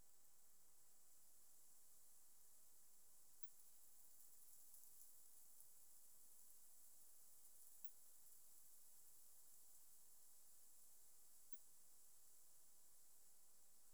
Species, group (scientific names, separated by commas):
Cyrtaspis scutata, Orthoptera